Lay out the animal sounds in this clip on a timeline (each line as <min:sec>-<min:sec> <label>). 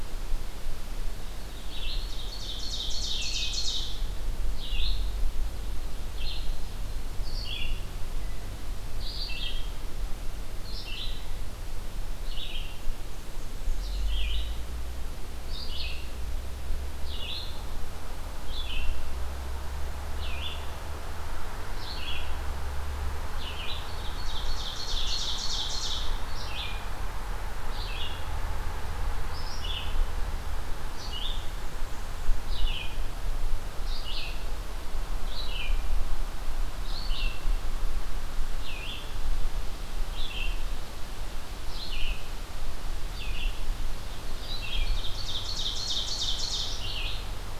0:00.0-0:07.8 Red-eyed Vireo (Vireo olivaceus)
0:02.1-0:03.8 Ovenbird (Seiurus aurocapilla)
0:05.0-0:06.9 Ovenbird (Seiurus aurocapilla)
0:08.7-0:47.6 Red-eyed Vireo (Vireo olivaceus)
0:12.8-0:14.1 Black-and-white Warbler (Mniotilta varia)
0:24.0-0:26.0 Ovenbird (Seiurus aurocapilla)
0:31.0-0:32.4 Black-and-white Warbler (Mniotilta varia)
0:44.9-0:46.7 Ovenbird (Seiurus aurocapilla)